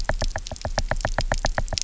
{"label": "biophony, knock", "recorder": "SoundTrap 300"}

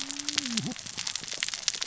{"label": "biophony, cascading saw", "recorder": "SoundTrap 600 or HydroMoth"}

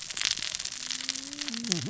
{"label": "biophony, cascading saw", "recorder": "SoundTrap 600 or HydroMoth"}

